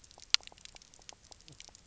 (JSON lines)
{"label": "biophony, knock croak", "recorder": "SoundTrap 300"}